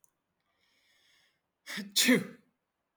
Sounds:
Sneeze